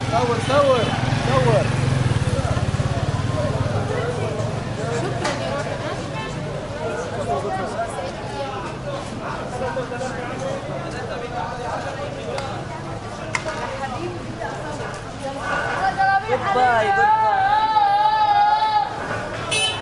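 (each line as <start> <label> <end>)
0.0 A man speaks loudly in Arabic in a busy market. 2.0
0.0 A generator runs in the background of a busy market. 4.5
0.5 A few car horns honk in a busy market. 0.8
2.4 Multiple people are talking over each other in Arabic in a busy market. 19.8
6.1 A car honks its horn. 6.3
15.8 A female vendor is singing and shouting in Arabic while promoting her wares in a busy market. 19.0
19.5 A car horn honks loudly. 19.8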